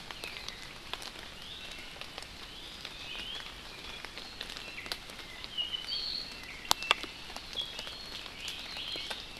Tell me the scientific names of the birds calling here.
Drepanis coccinea